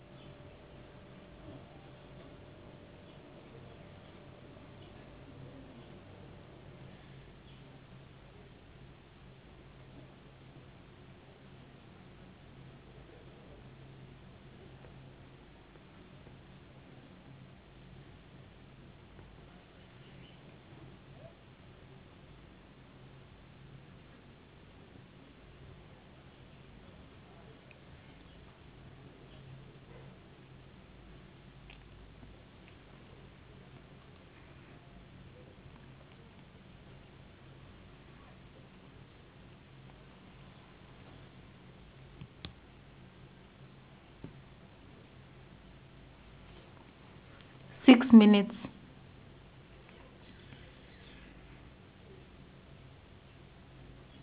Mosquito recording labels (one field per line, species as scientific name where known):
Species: no mosquito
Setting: insect culture